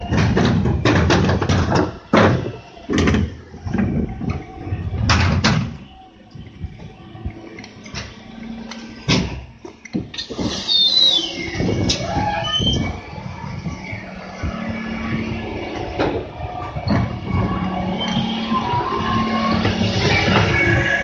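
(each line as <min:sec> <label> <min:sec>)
0:00.0 A man runs down metal stairs with uneven rumbling sounds. 0:02.9
0:00.0 A boat engine humming and running increasingly loudly. 0:21.0
0:02.9 Repetitive dull, low knocking indoors. 0:04.9
0:05.0 Repeated high-pitched crackling knocks indoors. 0:06.3
0:08.9 A dull, loud, low single knock is heard indoors. 0:09.4
0:10.4 A door opens steadily with a long squeaky sound indoors. 0:13.4
0:15.9 Repetitive dull, low knocking indoors. 0:18.2
0:18.2 A long, steady squeaky noise indoors. 0:21.0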